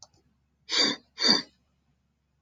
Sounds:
Sniff